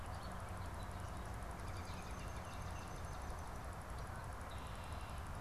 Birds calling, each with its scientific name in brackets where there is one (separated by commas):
Swamp Sparrow (Melospiza georgiana), Bobolink (Dolichonyx oryzivorus), Red-winged Blackbird (Agelaius phoeniceus)